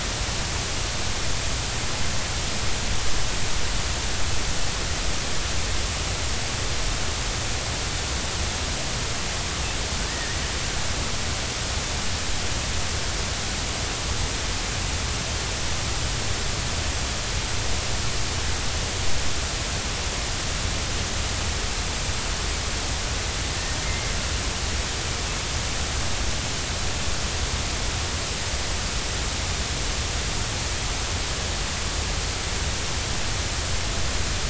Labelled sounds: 10.1	10.4	killer whale, 1.7 to 2.0 kHz
23.8	24.1	killer whale, 2.0 to 2.2 kHz

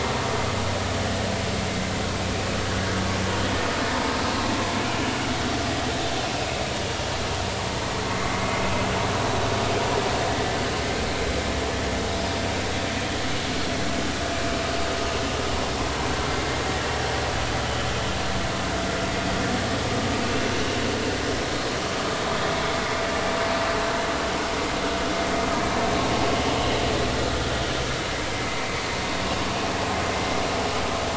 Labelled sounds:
8.1	8.4	vessel noise, 2.0 to 2.2 kHz
10.3	10.6	vessel noise, 1.9 to 2.0 kHz

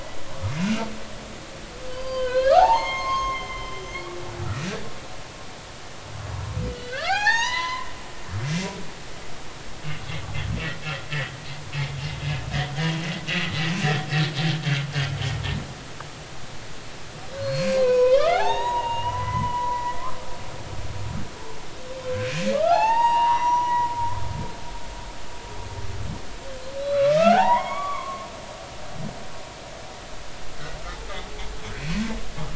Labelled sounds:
0.6	0.8	humpback whale, 2.4 to 2.5 kHz
1.9	4.1	humpback whale, 0.80 to 6.5 kHz
6.7	7.9	humpback whale, 0.80 to 8.0 kHz
12.6	12.8	humpback whale, 3.0 to 3.3 kHz
17.4	19.9	humpback whale, 0.80 to 6.8 kHz
22.5	23.9	humpback whale, 0.80 to 5.9 kHz
26.8	28.3	humpback whale, 0.80 to 4.0 kHz
31.8	32.0	humpback whale, 2.4 to 2.6 kHz

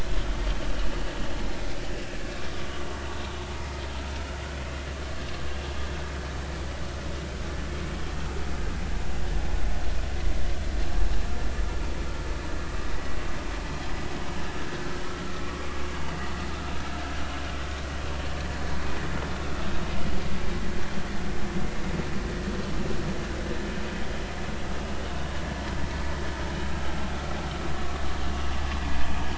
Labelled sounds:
15.0	15.7	vessel noise, 1.1 to 1.4 kHz
27.8	28.0	vessel noise, 1.1 to 1.2 kHz

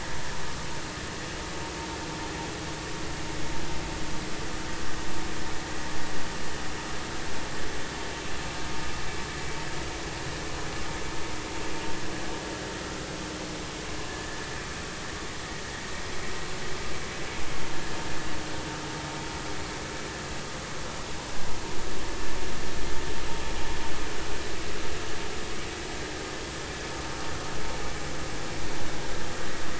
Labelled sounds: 14.1	14.4	vessel noise, 1.6 to 1.9 kHz

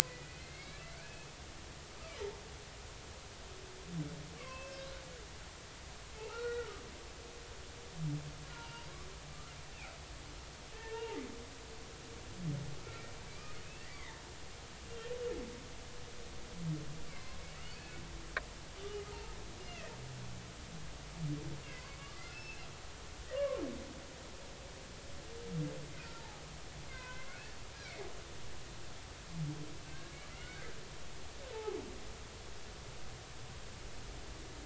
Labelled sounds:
0.0	1.3	humpback whale, 1.9 to 4.1 kHz
4.4	4.8	humpback whale, 0.99 to 2.9 kHz
6.2	6.7	humpback whale, 1.2 to 3.9 kHz
8.5	9.5	humpback whale, 0.86 to 1.4 kHz
10.7	11.2	humpback whale, 0.80 to 2.9 kHz
12.8	13.5	humpback whale, 1.2 to 2.5 kHz
13.9	14.2	humpback whale, 1.7 to 2.4 kHz
17.1	17.4	humpback whale, 2.0 to 2.3 kHz
17.7	18.0	humpback whale, 2.5 to 2.7 kHz
19.1	20.0	humpback whale, 0.80 to 2.9 kHz
22.2	22.6	humpback whale, 1.3 to 2.7 kHz
23.2	23.6	humpback whale, 0.99 to 2.0 kHz
26.0	27.3	humpback whale, 0.80 to 2.8 kHz
29.9	30.7	humpback whale, 1.3 to 2.3 kHz
31.5	31.8	humpback whale, 0.80 to 0.93 kHz

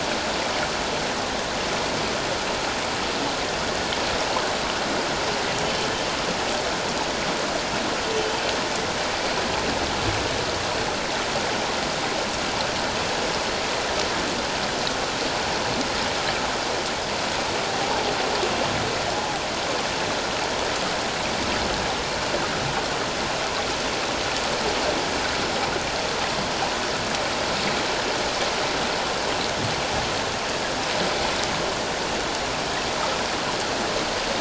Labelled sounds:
5.6	5.9	humpback whale, 3.0 to 3.1 kHz

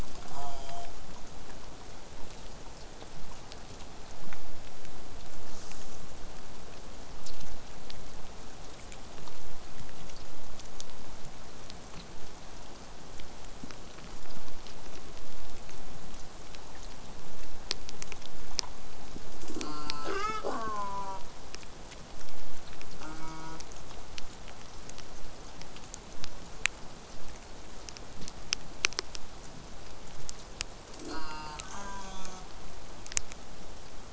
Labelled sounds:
0.3	0.9	killer whale, southern resident, J pod, call S04, 0.35 to 8.0 kHz
12.1	17.1	vessel noise, 0 to 8.0 kHz
19.6	21.2	killer whale, southern resident, J pod, call S04, 0.04 to 8.0 kHz
23.0	23.6	killer whale, southern resident, J pod, call S04, 0.12 to 8.0 kHz
31.0	32.5	killer whale, southern resident, J pod, call S04, 0.15 to 8.0 kHz

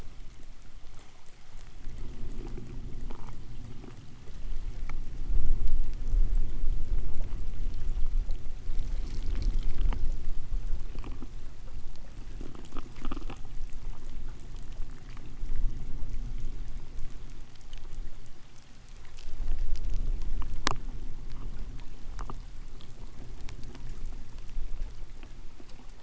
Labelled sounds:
12.3	15.4	killer whale, K pod, 7.95 to 8.00 kHz

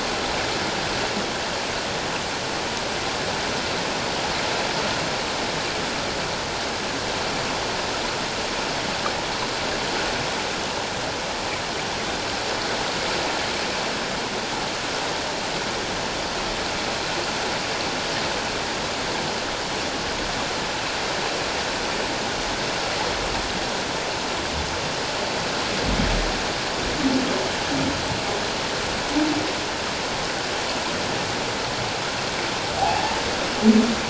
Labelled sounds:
32.8	33.0	humpback whale, 0.78 to 0.91 kHz

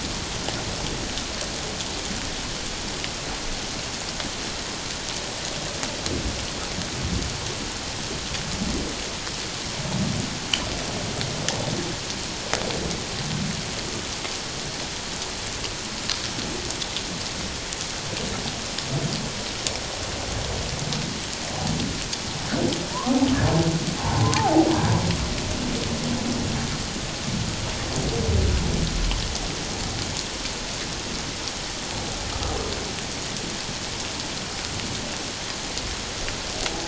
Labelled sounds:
22.9	23.2	humpback whale, 0.91 to 1.3 kHz
24.0	24.7	humpback whale, 0.78 to 1.1 kHz

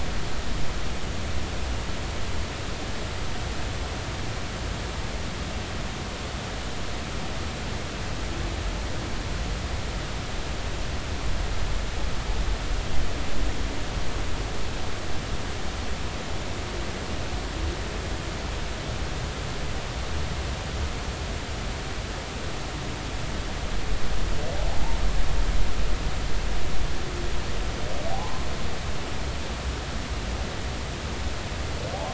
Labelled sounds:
28.0	28.5	humpback whale, 0.80 to 1.1 kHz

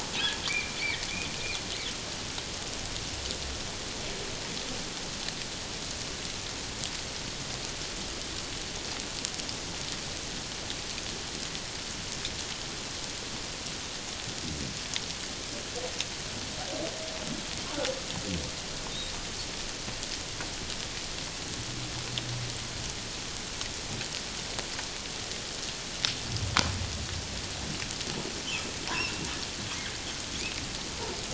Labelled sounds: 0.5	1.1	humpback whale, 1.8 to 2.5 kHz

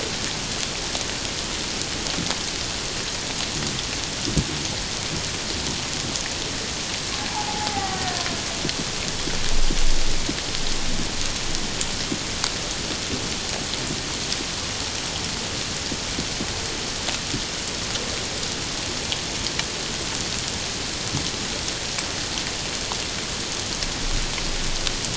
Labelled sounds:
7.2	8.2	killer whale, Bigg's (transient), 0.78 to 2.1 kHz

